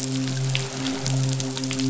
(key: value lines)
label: biophony, midshipman
recorder: SoundTrap 500